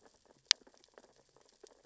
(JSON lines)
{"label": "biophony, sea urchins (Echinidae)", "recorder": "SoundTrap 600 or HydroMoth"}